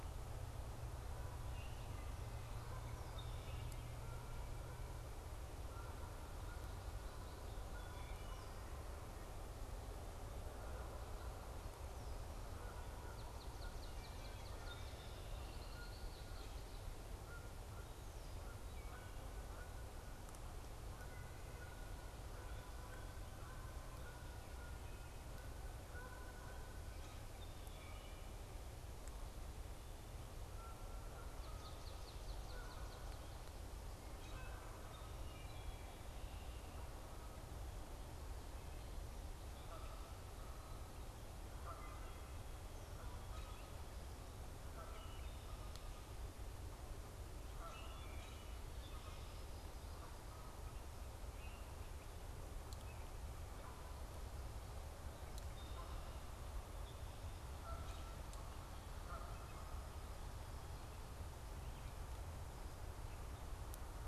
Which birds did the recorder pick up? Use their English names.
Canada Goose, Wood Thrush, Swamp Sparrow, Red-winged Blackbird, Common Grackle